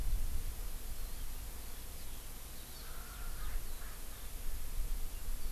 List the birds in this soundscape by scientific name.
Alauda arvensis, Pternistis erckelii